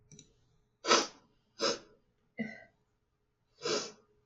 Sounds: Sniff